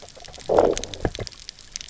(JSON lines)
{"label": "biophony, low growl", "recorder": "SoundTrap 300"}